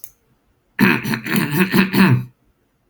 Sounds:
Throat clearing